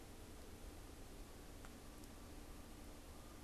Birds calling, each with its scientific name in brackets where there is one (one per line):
Canada Goose (Branta canadensis)